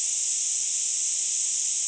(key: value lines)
label: ambient
recorder: HydroMoth